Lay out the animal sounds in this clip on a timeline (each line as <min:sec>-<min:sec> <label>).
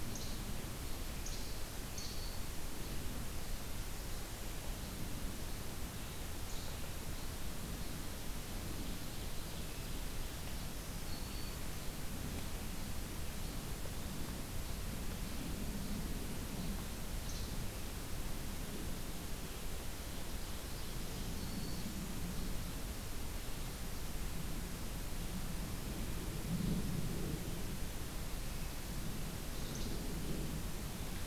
0:00.1-0:00.4 Least Flycatcher (Empidonax minimus)
0:01.2-0:02.2 Least Flycatcher (Empidonax minimus)
0:01.7-0:02.6 Black-throated Green Warbler (Setophaga virens)
0:10.7-0:12.0 Black-throated Green Warbler (Setophaga virens)
0:19.5-0:21.5 Ovenbird (Seiurus aurocapilla)
0:21.1-0:21.9 Black-throated Green Warbler (Setophaga virens)
0:29.7-0:30.0 Least Flycatcher (Empidonax minimus)